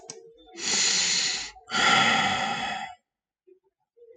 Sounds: Sigh